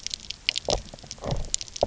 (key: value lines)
label: biophony, knock croak
recorder: SoundTrap 300